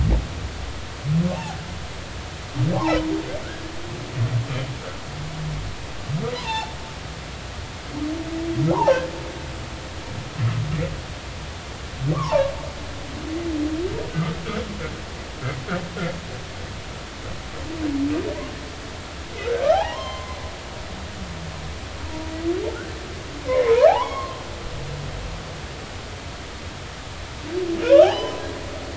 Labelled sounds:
6.3	6.8	humpback whale, 0.80 to 4.1 kHz
12.1	12.5	humpback whale, 0.83 to 1.2 kHz
19.7	20.4	humpback whale, 0.80 to 4.3 kHz
23.5	24.4	humpback whale, 0.80 to 3.4 kHz
27.9	28.4	humpback whale, 0.80 to 3.3 kHz

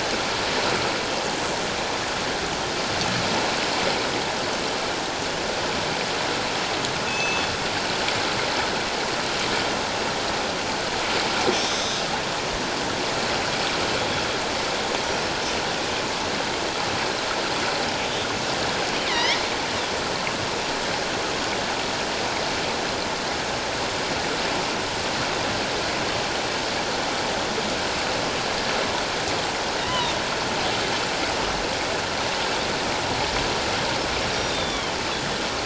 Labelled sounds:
7.1	7.5	killer whale, northern resident, G clan, 2.5 to 6.2 kHz
11.6	12.0	killer whale, northern resident, A clan, 3.3 to 3.9 kHz
19.1	19.4	killer whale, northern resident, A clan, 0.91 to 3.6 kHz
29.8	30.1	killer whale, northern resident, 0.88 to 3.2 kHz
34.2	35.0	killer whale, northern resident, 2.9 to 5.7 kHz

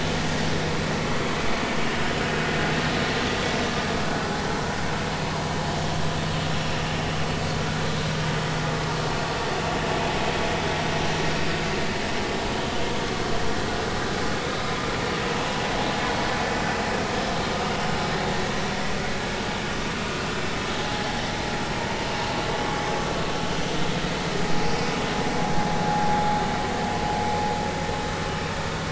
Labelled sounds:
6.5	6.7	vessel noise, 5.5 to 5.7 kHz
20.8	21.1	vessel noise, 0.80 to 0.86 kHz

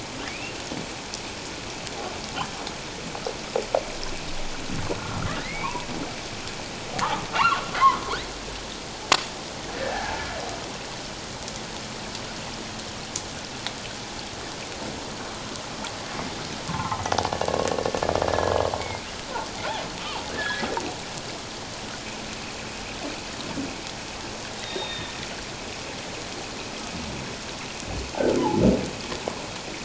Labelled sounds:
0.3	0.5	humpback whale, 2.2 to 2.8 kHz
5.4	5.9	humpback whale, 0.78 to 2.8 kHz
7.0	7.6	humpback whale, 0.78 to 1.5 kHz
9.7	10.3	humpback whale, 0.78 to 1.8 kHz
16.7	17.0	humpback whale, 0.78 to 1.5 kHz
18.3	19.1	humpback whale, 1.6 to 2.3 kHz
20.3	20.7	humpback whale, 1.5 to 1.8 kHz
24.6	25.1	humpback whale, 1.8 to 3.9 kHz
28.4	28.6	humpback whale, 0.78 to 1.1 kHz

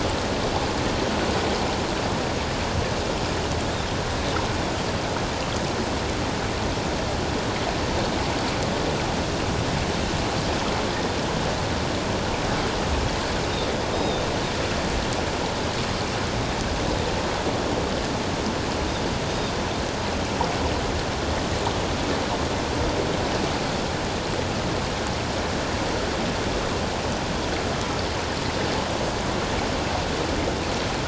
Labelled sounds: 13.9	14.2	Pacific white-sided dolphin, 3.5 to 3.8 kHz

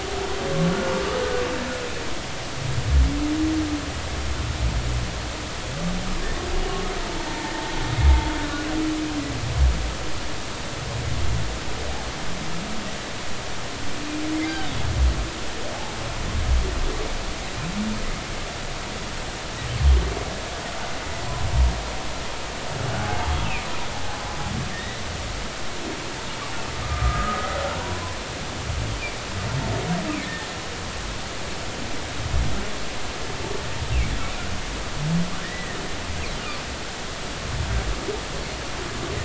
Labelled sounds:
7.3	7.5	humpback whale, 0.83 to 0.96 kHz
23.0	23.3	humpback whale, 0.80 to 0.96 kHz
24.7	25.0	humpback whale, 1.8 to 4.0 kHz
26.8	28.2	humpback whale, 0.93 to 1.4 kHz
30.1	30.5	humpback whale, 1.8 to 2.7 kHz
35.4	35.8	humpback whale, 1.7 to 2.0 kHz

